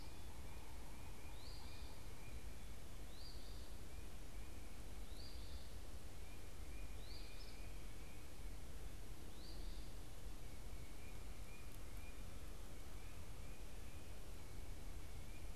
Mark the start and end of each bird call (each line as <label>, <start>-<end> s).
Eastern Phoebe (Sayornis phoebe), 0.0-5.7 s
Eastern Phoebe (Sayornis phoebe), 7.0-15.6 s